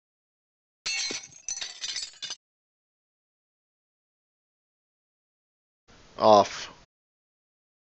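At 0.85 seconds, glass shatters. Later, at 6.19 seconds, someone says "Off."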